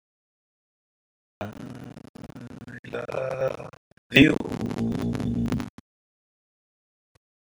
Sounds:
Sigh